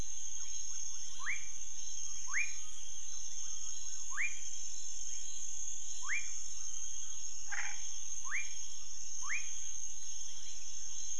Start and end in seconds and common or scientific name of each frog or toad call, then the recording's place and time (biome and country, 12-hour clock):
1.1	2.6	rufous frog
4.0	4.5	rufous frog
5.9	6.5	rufous frog
7.5	7.9	Scinax fuscovarius
8.1	9.6	rufous frog
Cerrado, Brazil, 11:00pm